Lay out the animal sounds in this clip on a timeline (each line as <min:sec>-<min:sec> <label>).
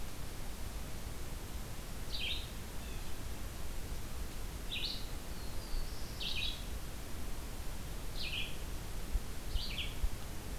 0:02.0-0:09.9 Red-eyed Vireo (Vireo olivaceus)
0:02.6-0:03.1 Blue Jay (Cyanocitta cristata)
0:05.2-0:06.4 Black-throated Blue Warbler (Setophaga caerulescens)